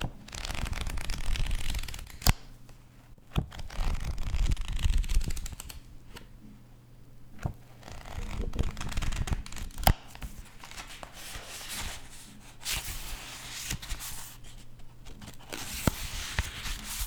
Can birds be heard chirping?
no